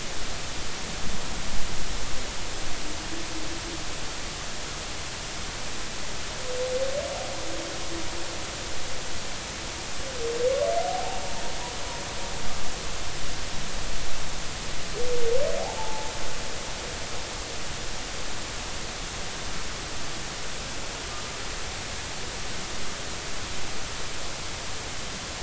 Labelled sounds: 10.8	11.2	humpback whale, 0.80 to 0.96 kHz
15.6	16.1	humpback whale, 0.80 to 0.96 kHz

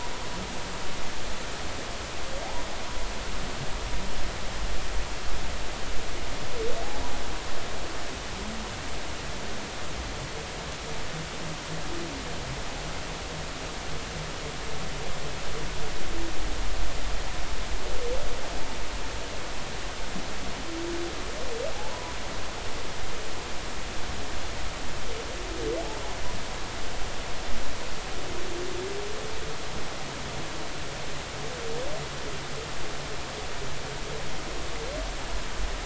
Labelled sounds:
21.9	22.2	humpback whale, 0.86 to 1.0 kHz

